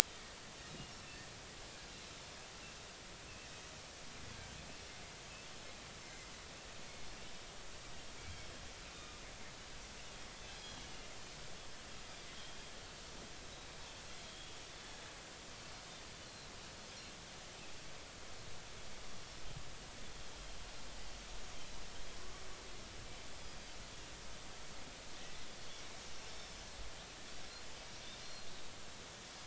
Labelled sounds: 6.0	6.3	Pacific white-sided dolphin, 2.0 to 2.1 kHz
8.9	9.2	Pacific white-sided dolphin, 1.1 to 1.3 kHz
10.5	10.8	Pacific white-sided dolphin, 3.1 to 4.2 kHz
14.2	14.5	Pacific white-sided dolphin, 3.2 to 3.4 kHz
16.2	16.6	Pacific white-sided dolphin, 3.8 to 4.3 kHz
21.9	22.2	Pacific white-sided dolphin, 3.0 to 3.3 kHz
23.4	23.7	Pacific white-sided dolphin, 4.8 to 5.1 kHz
25.2	25.5	Pacific white-sided dolphin, 1.9 to 2.0 kHz
26.3	26.6	Pacific white-sided dolphin, 5.1 to 5.5 kHz
28.2	28.5	Pacific white-sided dolphin, 4.2 to 4.3 kHz

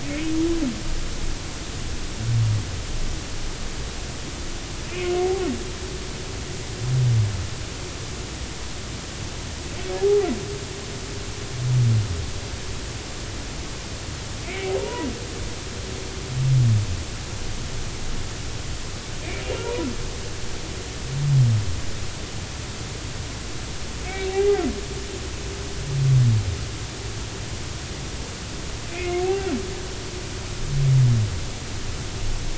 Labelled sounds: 9.9	10.3	humpback whale, 0.80 to 0.86 kHz
14.4	15.1	humpback whale, 0.90 to 2.6 kHz
19.6	19.9	humpback whale, 0.90 to 1.0 kHz
24.1	24.6	humpback whale, 0.80 to 3.9 kHz
28.9	29.2	humpback whale, 2.0 to 2.3 kHz

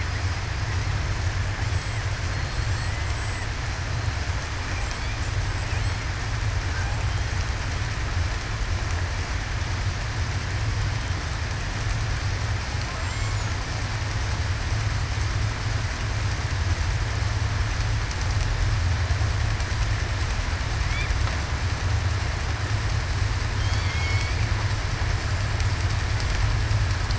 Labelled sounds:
2.3	3.1	killer whale, southern resident, 1.9 to 4.3 kHz
13.0	13.4	killer whale, southern resident, 7.2 to 7.5 kHz
23.6	24.0	killer whale, southern resident, 3.1 to 3.5 kHz

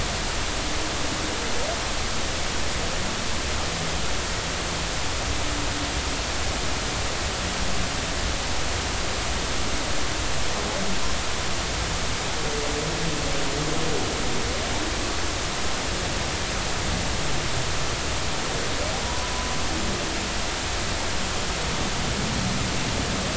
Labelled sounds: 19.1	19.3	humpback whale, 0.93 to 1.0 kHz

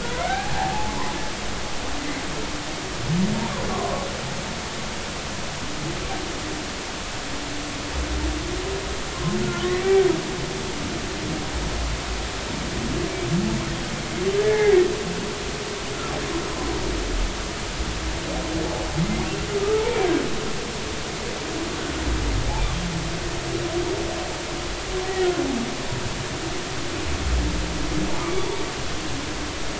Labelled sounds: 0.1	1.1	humpback whale, 0.80 to 2.2 kHz
3.7	4.1	humpback whale, 0.96 to 1.2 kHz
9.8	10.1	humpback whale, 2.2 to 2.4 kHz
14.4	14.9	humpback whale, 0.80 to 2.3 kHz
19.6	19.8	humpback whale, 1.2 to 1.3 kHz

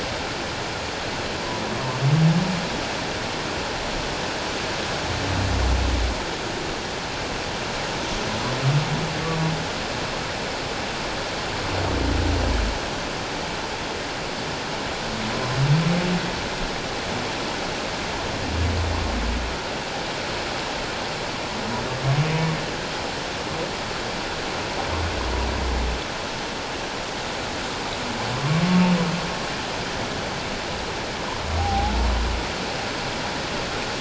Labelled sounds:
31.6	31.9	humpback whale, 0.78 to 0.91 kHz

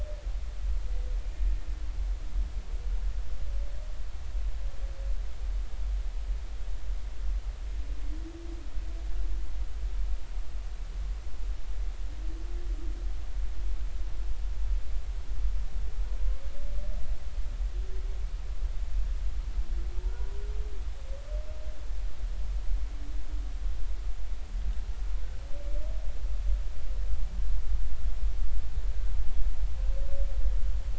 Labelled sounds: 20.1	20.3	humpback whale, 1.3 to 1.5 kHz

